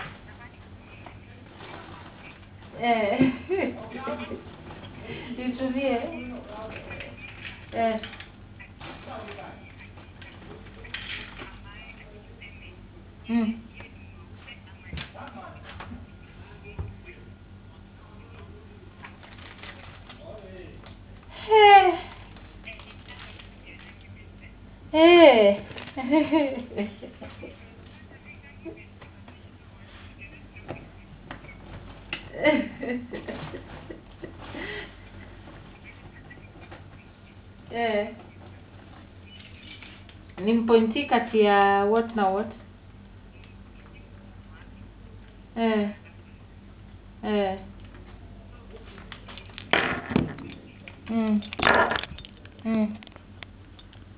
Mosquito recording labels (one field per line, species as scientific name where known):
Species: no mosquito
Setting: insect culture